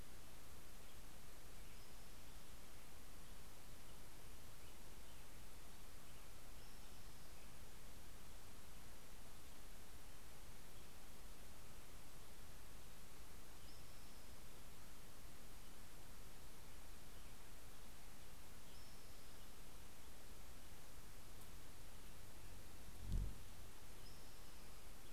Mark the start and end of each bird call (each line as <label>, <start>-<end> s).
Spotted Towhee (Pipilo maculatus), 1.3-3.2 s
Spotted Towhee (Pipilo maculatus), 6.4-7.8 s
Spotted Towhee (Pipilo maculatus), 13.0-15.1 s
Dark-eyed Junco (Junco hyemalis), 18.0-19.9 s
Spotted Towhee (Pipilo maculatus), 23.2-25.1 s